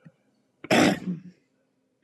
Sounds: Throat clearing